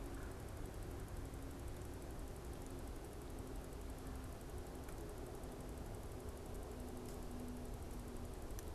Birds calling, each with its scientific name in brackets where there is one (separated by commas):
Red-bellied Woodpecker (Melanerpes carolinus)